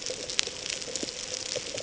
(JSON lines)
{"label": "ambient", "recorder": "HydroMoth"}